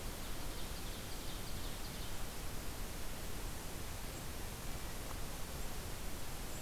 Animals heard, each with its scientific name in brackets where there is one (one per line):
Ovenbird (Seiurus aurocapilla)